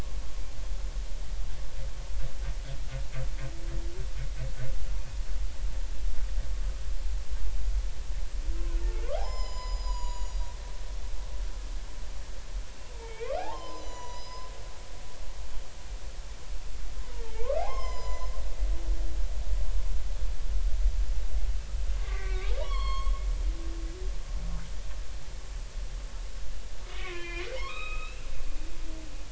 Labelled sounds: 8.5	10.5	humpback whale, 0.80 to 7.3 kHz
12.9	14.5	humpback whale, 0.80 to 7.0 kHz
17.3	18.4	humpback whale, 0.80 to 7.2 kHz
22.0	23.2	humpback whale, 0.90 to 6.6 kHz
26.9	28.3	humpback whale, 0.90 to 4.0 kHz

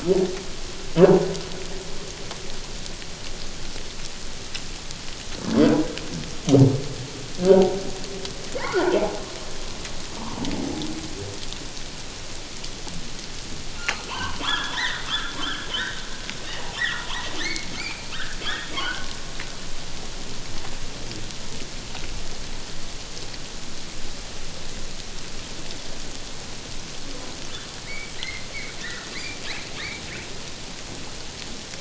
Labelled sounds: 7.5	7.8	humpback whale, 0.88 to 1.0 kHz
8.6	9.0	humpback whale, 1.3 to 1.7 kHz
14.1	16.0	humpback whale, 0.88 to 3.8 kHz
16.8	19.1	humpback whale, 0.94 to 4.5 kHz
27.9	29.4	humpback whale, 1.7 to 2.4 kHz

